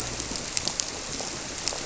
{"label": "biophony", "recorder": "SoundTrap 300"}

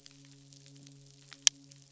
{"label": "biophony, midshipman", "recorder": "SoundTrap 500"}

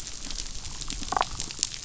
{"label": "biophony, damselfish", "recorder": "SoundTrap 500"}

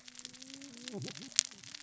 {"label": "biophony, cascading saw", "recorder": "SoundTrap 600 or HydroMoth"}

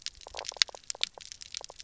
{"label": "biophony, knock croak", "recorder": "SoundTrap 300"}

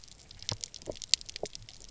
{"label": "biophony, pulse", "recorder": "SoundTrap 300"}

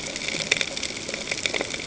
{"label": "ambient", "recorder": "HydroMoth"}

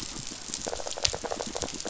{"label": "biophony", "recorder": "SoundTrap 500"}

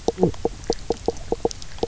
{"label": "biophony, knock croak", "recorder": "SoundTrap 300"}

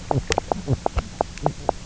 {"label": "biophony, knock croak", "recorder": "SoundTrap 300"}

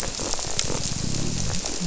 {"label": "biophony", "recorder": "SoundTrap 300"}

